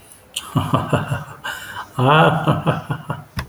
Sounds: Laughter